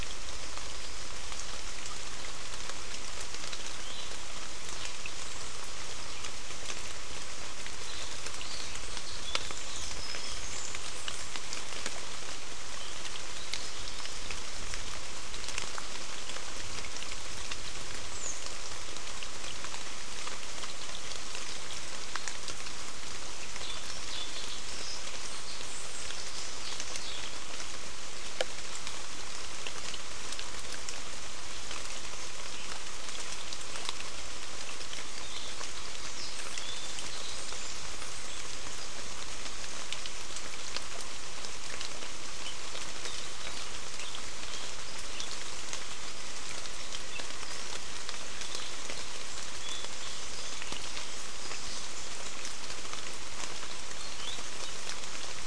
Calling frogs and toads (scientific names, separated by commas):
none